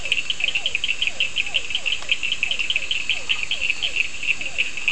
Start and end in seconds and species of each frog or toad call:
0.0	4.9	Elachistocleis bicolor
0.0	4.9	Physalaemus cuvieri
0.0	4.9	Sphaenorhynchus surdus
3.1	4.9	Boana prasina

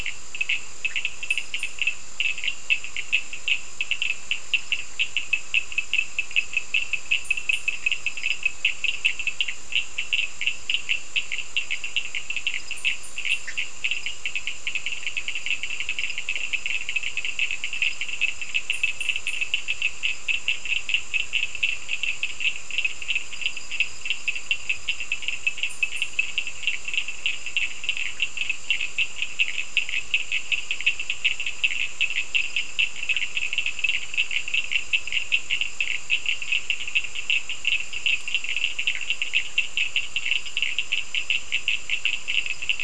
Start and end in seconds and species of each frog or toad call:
0.0	42.8	Sphaenorhynchus surdus
13.3	13.7	Boana bischoffi

